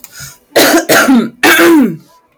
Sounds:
Throat clearing